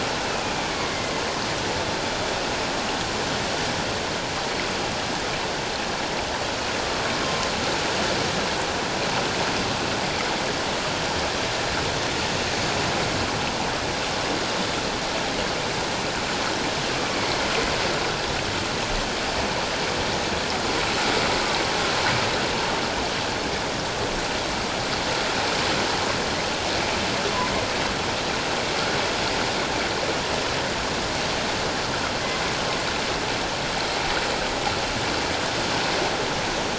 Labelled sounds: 0.2	0.6	killer whale, northern resident, A clan, AA subclan, A04 pod, 2.4 to 2.8 kHz
0.9	1.2	killer whale, northern resident, A clan, AA subclan, 2.0 to 2.1 kHz
17.1	17.4	killer whale, northern resident, A clan, AA subclan, 2.0 to 2.3 kHz

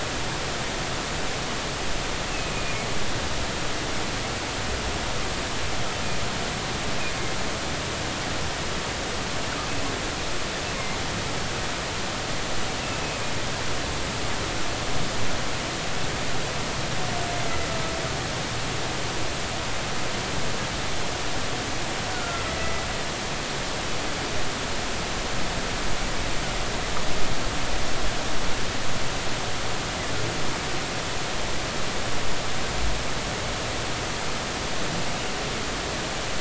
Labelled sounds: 2.3	2.8	humpback whale, 2.4 to 2.7 kHz
22.1	22.8	humpback whale, 1.3 to 2.1 kHz

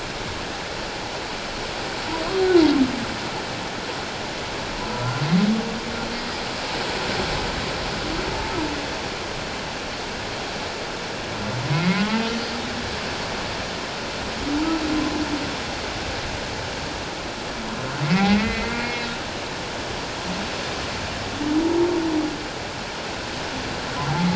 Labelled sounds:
4.9	5.2	humpback whale, 1.3 to 1.5 kHz
8.3	8.6	humpback whale, 0.84 to 0.94 kHz
11.7	12.2	humpback whale, 0.94 to 2.2 kHz
18.0	19.1	humpback whale, 1.9 to 2.7 kHz
21.6	21.9	humpback whale, 0.84 to 1.0 kHz

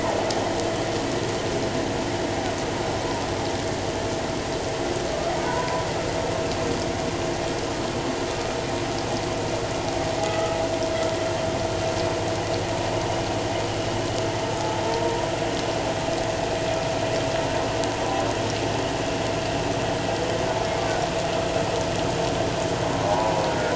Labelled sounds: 5.4	5.9	humpback whale, 0.91 to 1.1 kHz
10.2	10.6	humpback whale, 1.2 to 1.3 kHz
23.1	23.4	humpback whale, 0.78 to 1.1 kHz

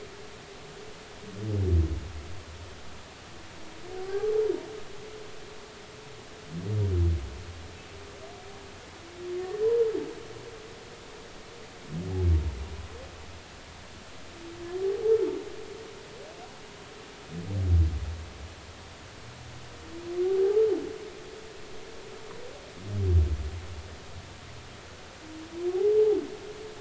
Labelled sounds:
4.0	4.3	humpback whale, 0.80 to 1.2 kHz
9.4	9.6	humpback whale, 1.7 to 1.9 kHz
14.8	15.2	humpback whale, 0.80 to 0.93 kHz
25.7	26.0	humpback whale, 0.80 to 0.86 kHz

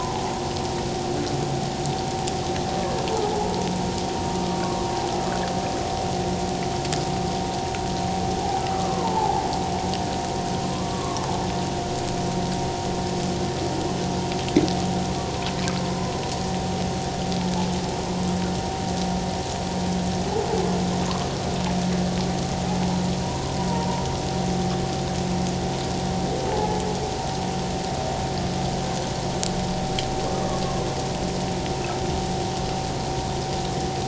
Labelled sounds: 4.3	4.6	humpback whale, 1.1 to 1.3 kHz
8.4	9.4	humpback whale, 0.78 to 1.3 kHz
10.7	11.3	humpback whale, 0.97 to 1.2 kHz
15.8	16.1	humpback whale, 0.97 to 1.1 kHz
23.2	23.5	humpback whale, 0.91 to 1.1 kHz
26.5	26.8	humpback whale, 0.78 to 0.91 kHz
30.3	30.6	humpback whale, 1.1 to 1.3 kHz

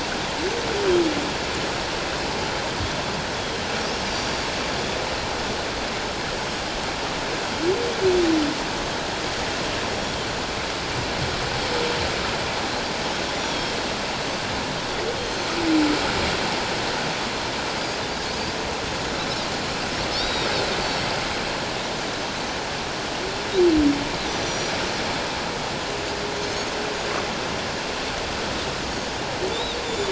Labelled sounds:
3.4	4.5	Pacific white-sided dolphin, 3.1 to 5.5 kHz
13.3	13.7	Pacific white-sided dolphin, 3.2 to 3.6 kHz
15.2	15.5	Pacific white-sided dolphin, 4.0 to 6.4 kHz
20.1	20.5	Pacific white-sided dolphin, 3.4 to 3.9 kHz
24.4	24.7	Pacific white-sided dolphin, 5.7 to 6.0 kHz
26.4	26.7	Pacific white-sided dolphin, 6.2 to 6.7 kHz
29.5	30.0	Pacific white-sided dolphin, 3.4 to 7.1 kHz

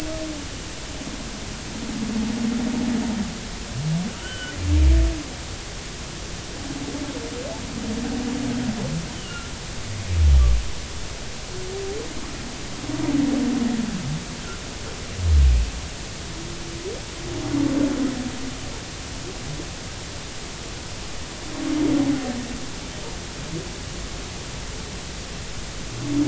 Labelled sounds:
4.1	4.5	humpback whale, 1.2 to 3.1 kHz
9.1	9.5	humpback whale, 2.7 to 3.1 kHz

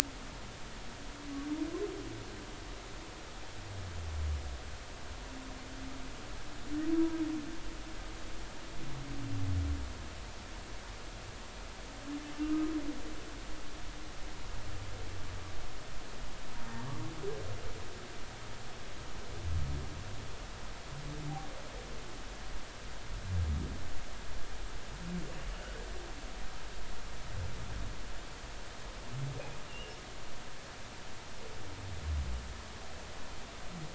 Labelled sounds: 12.4	12.7	humpback whale, 1.2 to 1.3 kHz
29.7	30.0	humpback whale, 2.7 to 2.9 kHz

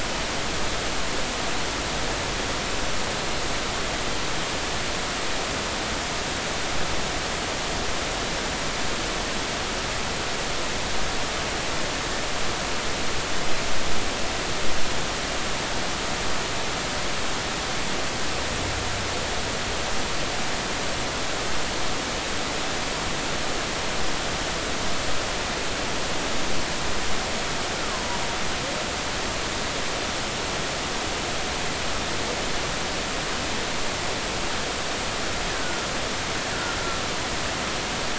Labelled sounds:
27.8	28.1	humpback whale, 0.96 to 1.4 kHz
35.5	35.9	killer whale, Bigg's (transient), 1.3 to 1.6 kHz

